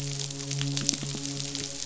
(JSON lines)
{"label": "biophony, midshipman", "recorder": "SoundTrap 500"}
{"label": "biophony", "recorder": "SoundTrap 500"}